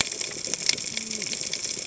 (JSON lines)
{"label": "biophony, cascading saw", "recorder": "HydroMoth"}